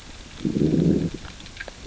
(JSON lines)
{"label": "biophony, growl", "recorder": "SoundTrap 600 or HydroMoth"}